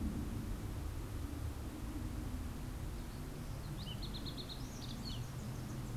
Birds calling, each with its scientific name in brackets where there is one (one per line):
Fox Sparrow (Passerella iliaca)